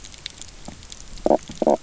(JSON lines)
{"label": "biophony, knock croak", "recorder": "SoundTrap 300"}